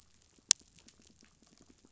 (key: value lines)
label: biophony, pulse
recorder: SoundTrap 500